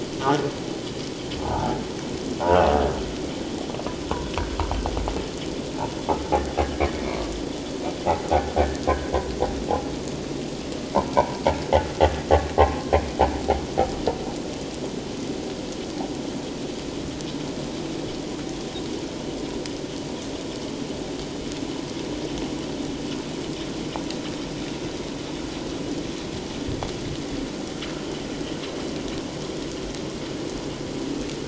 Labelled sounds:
0.2	0.5	humpback whale, 1.3 to 1.5 kHz
1.5	1.7	humpback whale, 1.3 to 1.6 kHz
6.6	6.8	humpback whale, 1.6 to 1.7 kHz
7.1	7.3	humpback whale, 1.1 to 1.2 kHz
8.3	9.2	humpback whale, 1.4 to 1.7 kHz
11.2	11.4	humpback whale, 0.84 to 1.0 kHz
12.5	12.9	humpback whale, 0.78 to 1.2 kHz

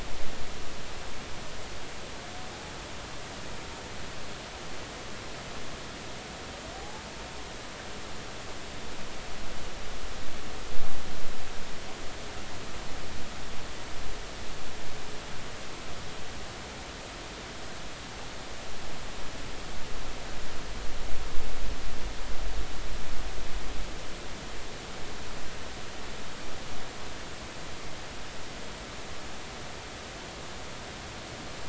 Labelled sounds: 6.7	7.0	Pacific white-sided dolphin, 0.80 to 0.93 kHz

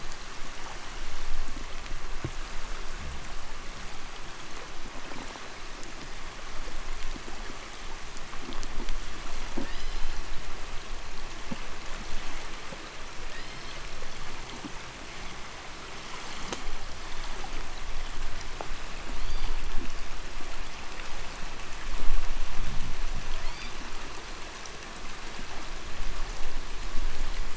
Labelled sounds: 2.7	3.3	fish, 0 to 0.44 kHz
5.0	6.3	killer whale, 3.7 to 4.5 kHz
8.1	9.8	noise likely from the mooring, 0 to 1.1 kHz
9.5	10.4	killer whale, 1.4 to 5.5 kHz
13.1	13.9	killer whale, 1.5 to 5.6 kHz
18.8	19.8	killer whale, 2.7 to 5.1 kHz
22.4	23.0	fish, 0 to 0.47 kHz
23.2	24.1	killer whale, 1.6 to 5.1 kHz

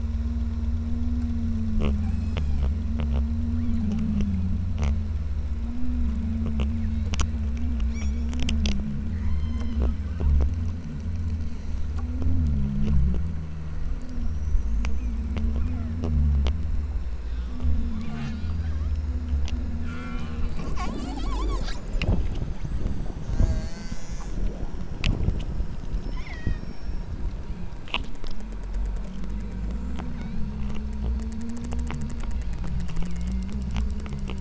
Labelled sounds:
1.9	2.6	killer whale, southern Alaska resident, 0.59 to 8.0 kHz
3.5	3.9	killer whale, southern Alaska resident, 0.84 to 5.5 kHz
6.8	7.1	killer whale, southern Alaska resident, 1.9 to 6.1 kHz
7.7	8.3	killer whale, southern Alaska resident, 0.91 to 8.0 kHz
9.1	10.0	killer whale, southern Alaska resident, 0.82 to 6.8 kHz
13.4	13.8	killer whale, southern Alaska resident, 1.7 to 3.7 kHz
14.9	15.3	killer whale, southern Alaska resident, 1.5 to 3.3 kHz
15.6	16.0	killer whale, southern Alaska resident, 0.55 to 3.0 kHz
17.4	19.1	killer whale, southern Alaska resident, 0.57 to 8.0 kHz
19.8	21.8	killer whale, southern Alaska resident, 0.64 to 8.0 kHz
23.3	24.5	killer whale, southern Alaska resident, 0.41 to 8.0 kHz
25.9	27.8	killer whale, southern Alaska resident, 0.55 to 8.0 kHz
30.1	30.6	killer whale, southern Alaska resident, 1.3 to 5.6 kHz
32.3	33.6	killer whale, southern Alaska resident, 1.8 to 4.3 kHz

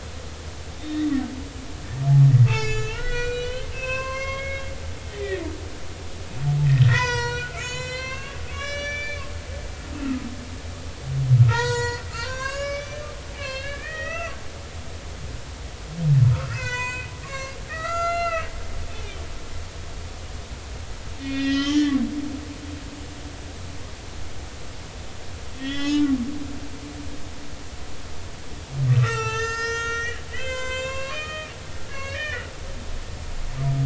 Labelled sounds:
0.8	1.1	humpback whale, 1.8 to 3.9 kHz
2.5	4.7	humpback whale, 0.99 to 8.0 kHz
5.1	5.5	humpback whale, 1.8 to 3.7 kHz
6.6	9.2	humpback whale, 0.90 to 8.0 kHz
10.0	10.2	humpback whale, 1.2 to 1.4 kHz
11.4	13.1	humpback whale, 0.83 to 7.9 kHz
13.3	14.3	humpback whale, 1.2 to 6.1 kHz
16.3	18.5	humpback whale, 0.93 to 8.0 kHz
21.2	22.0	humpback whale, 1.1 to 5.4 kHz
25.6	26.1	humpback whale, 1.8 to 6.5 kHz
28.9	32.5	humpback whale, 0.83 to 8.0 kHz

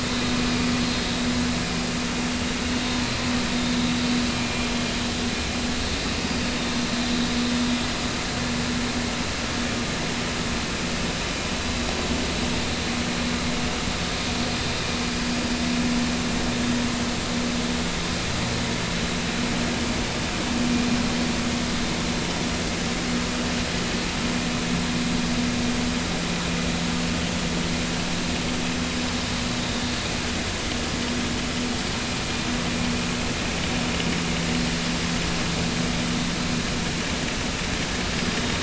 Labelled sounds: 5.3	5.7	vessel noise, 2.3 to 2.4 kHz
38.3	38.6	vessel noise, 3.6 to 3.8 kHz

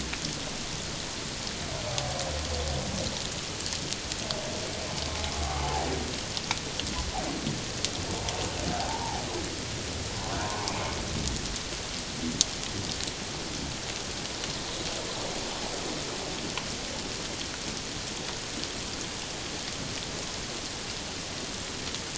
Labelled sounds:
8.9	9.2	humpback whale, 0.78 to 1.0 kHz
10.4	10.7	humpback whale, 0.81 to 1.2 kHz

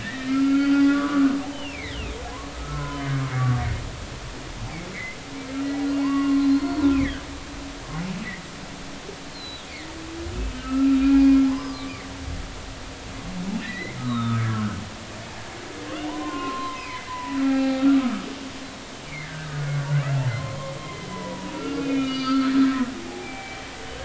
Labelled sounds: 0.0	2.2	humpback whale, 0.86 to 4.8 kHz
2.7	3.0	humpback whale, 0.96 to 1.1 kHz
3.4	3.9	humpback whale, 1.1 to 1.4 kHz
4.9	5.2	humpback whale, 1.9 to 2.3 kHz
6.0	7.2	humpback whale, 0.80 to 4.4 kHz
9.3	9.6	humpback whale, 3.9 to 4.3 kHz
10.6	12.1	humpback whale, 0.96 to 5.2 kHz
13.6	14.8	humpback whale, 0.99 to 4.1 kHz
16.1	18.3	humpback whale, 0.80 to 3.2 kHz
19.2	19.7	humpback whale, 1.4 to 1.9 kHz
20.4	22.5	humpback whale, 0.90 to 4.8 kHz
23.1	23.7	humpback whale, 0.80 to 3.2 kHz

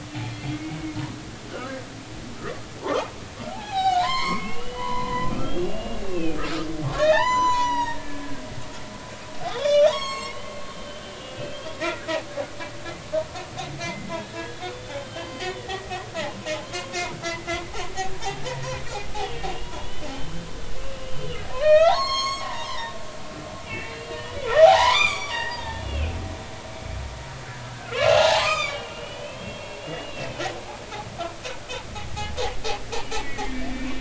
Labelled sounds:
0.5	0.8	humpback whale, 2.1 to 2.3 kHz
2.8	8.3	humpback whale, 0.80 to 7.1 kHz
9.5	12.1	humpback whale, 0.80 to 7.8 kHz
13.8	15.9	humpback whale, 1.6 to 4.9 kHz
16.6	17.6	humpback whale, 0.99 to 3.3 kHz
18.5	20.4	humpback whale, 0.90 to 3.6 kHz
21.1	26.5	humpback whale, 0.80 to 7.7 kHz
27.7	30.4	humpback whale, 0.80 to 7.6 kHz
33.0	33.9	humpback whale, 1.8 to 2.5 kHz

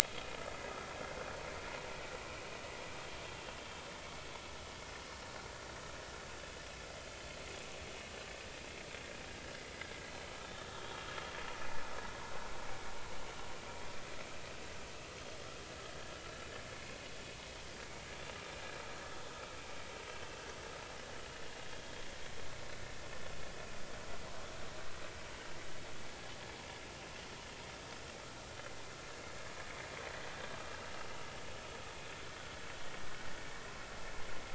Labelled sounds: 10.8	11.1	vessel noise, 3.1 to 3.4 kHz
16.7	17.0	vessel noise, 2.1 to 2.3 kHz

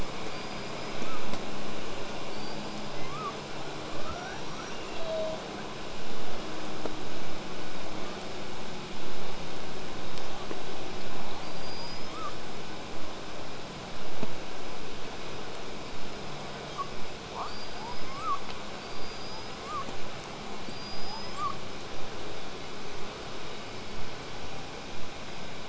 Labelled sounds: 0.3	1.2	killer whale, southern resident, L pod, call S19, 0.94 to 8.0 kHz
2.2	3.3	killer whale, southern resident, L pod, call S19, 0.70 to 8.0 kHz
3.9	5.4	killer whale, southern resident, L pod, call S02iii, 0.47 to 7.3 kHz
11.4	12.4	killer whale, southern resident, L pod, call S19, 0.90 to 8.0 kHz
17.5	18.4	killer whale, southern resident, L pod, call S19, 0.30 to 8.0 kHz
18.8	19.9	killer whale, southern resident, L pod, call S19, 0.73 to 8.0 kHz
20.6	21.6	killer whale, southern resident, L pod, call S19, 0.47 to 8.0 kHz

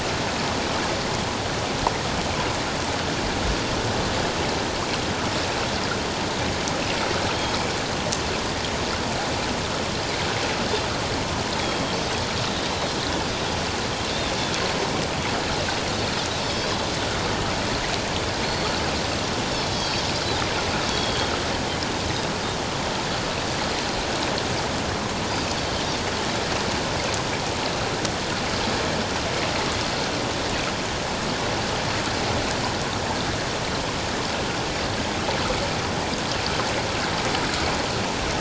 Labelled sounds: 11.6	12.0	Pacific white-sided dolphin, 3.1 to 3.4 kHz
16.4	16.7	Pacific white-sided dolphin, 3.2 to 5.4 kHz
18.4	18.8	Pacific white-sided dolphin, 4.2 to 4.5 kHz
19.7	21.3	Pacific white-sided dolphin, 3.1 to 4.8 kHz

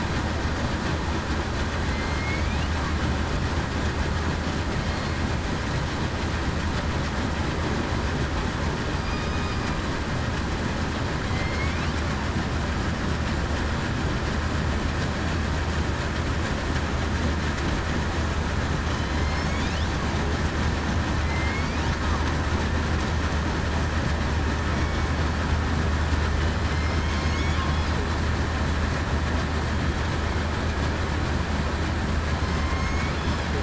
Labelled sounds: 1.9	2.6	killer whale, southern resident, 2.0 to 2.6 kHz
9.1	9.5	killer whale, southern resident, 3.7 to 3.8 kHz
11.3	11.8	killer whale, southern resident, 2.0 to 2.5 kHz
18.9	19.3	killer whale, southern resident, 3.0 to 3.2 kHz
21.2	21.8	killer whale, southern resident, 2.0 to 2.5 kHz
24.7	25.1	killer whale, southern resident, 2.2 to 2.3 kHz
27.1	27.5	killer whale, southern resident, 5.3 to 5.6 kHz
32.4	33.1	killer whale, southern resident, 2.1 to 2.3 kHz

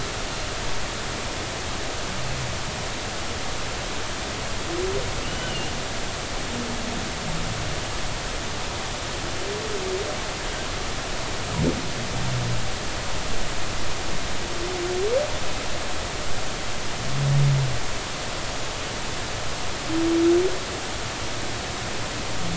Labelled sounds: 5.2	5.7	humpback whale, 2.7 to 3.1 kHz

